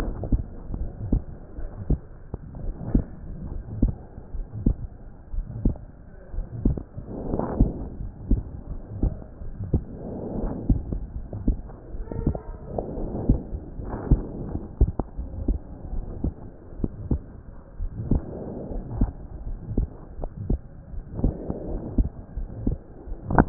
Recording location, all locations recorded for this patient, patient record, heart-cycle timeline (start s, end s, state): pulmonary valve (PV)
aortic valve (AV)+pulmonary valve (PV)+tricuspid valve (TV)+mitral valve (MV)
#Age: Child
#Sex: Male
#Height: 129.0 cm
#Weight: 22.3 kg
#Pregnancy status: False
#Murmur: Present
#Murmur locations: pulmonary valve (PV)+tricuspid valve (TV)
#Most audible location: pulmonary valve (PV)
#Systolic murmur timing: Late-systolic
#Systolic murmur shape: Diamond
#Systolic murmur grading: I/VI
#Systolic murmur pitch: Low
#Systolic murmur quality: Harsh
#Diastolic murmur timing: nan
#Diastolic murmur shape: nan
#Diastolic murmur grading: nan
#Diastolic murmur pitch: nan
#Diastolic murmur quality: nan
#Outcome: Abnormal
#Campaign: 2015 screening campaign
0.00	1.22	unannotated
1.22	1.56	diastole
1.56	1.68	S1
1.68	1.86	systole
1.86	2.00	S2
2.00	2.60	diastole
2.60	2.75	S1
2.75	2.92	systole
2.92	3.06	S2
3.06	3.44	diastole
3.44	3.64	S1
3.64	3.79	systole
3.79	3.96	S2
3.96	4.28	diastole
4.28	4.47	S1
4.47	4.62	systole
4.62	4.78	S2
4.78	5.32	diastole
5.32	5.46	S1
5.46	5.62	systole
5.62	5.76	S2
5.76	6.32	diastole
6.32	6.46	S1
6.46	6.64	systole
6.64	6.80	S2
6.80	7.21	diastole
7.21	7.39	S1
7.39	7.56	systole
7.56	7.70	S2
7.70	7.96	diastole
7.96	8.13	S1
8.13	8.26	systole
8.26	8.44	S2
8.44	8.67	diastole
8.67	8.82	S1
8.82	9.00	systole
9.00	9.12	S2
9.12	9.39	diastole
9.39	9.54	S1
9.54	9.68	systole
9.68	9.84	S2
9.84	10.35	diastole
10.35	10.52	S1
10.52	10.68	systole
10.68	10.84	S2
10.84	11.14	diastole
11.14	11.26	S1
11.26	11.44	systole
11.44	11.60	S2
11.60	11.94	diastole
11.94	12.06	S1
12.06	12.24	systole
12.24	12.40	S2
12.40	23.49	unannotated